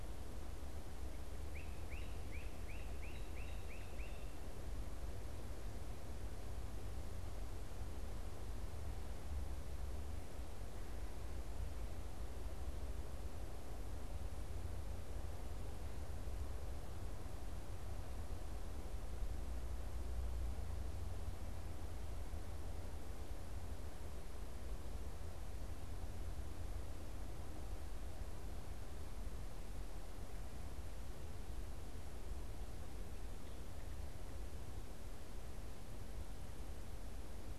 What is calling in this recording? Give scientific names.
Myiarchus crinitus